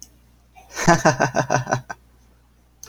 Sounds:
Laughter